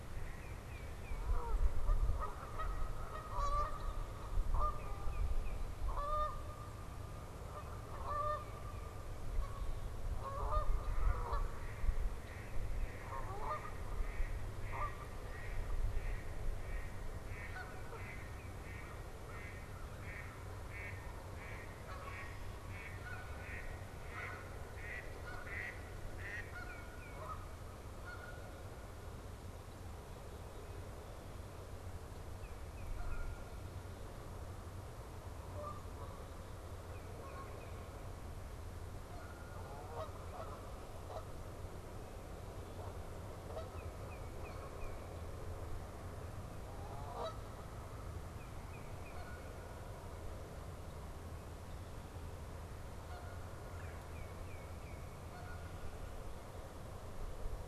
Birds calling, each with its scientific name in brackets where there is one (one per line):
Mallard (Anas platyrhynchos)
Tufted Titmouse (Baeolophus bicolor)
American Crow (Corvus brachyrhynchos)
Red-bellied Woodpecker (Melanerpes carolinus)
unidentified bird
Canada Goose (Branta canadensis)